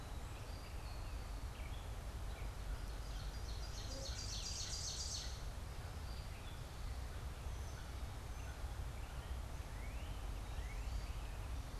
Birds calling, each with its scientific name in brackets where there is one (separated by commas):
Northern Cardinal (Cardinalis cardinalis), Gray Catbird (Dumetella carolinensis), American Crow (Corvus brachyrhynchos), Ovenbird (Seiurus aurocapilla)